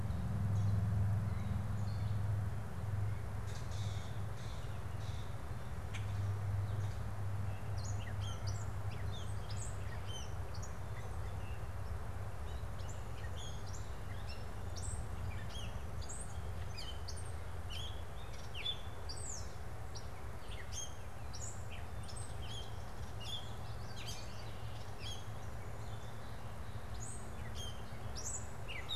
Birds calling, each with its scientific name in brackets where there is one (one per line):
Common Grackle (Quiscalus quiscula)
Gray Catbird (Dumetella carolinensis)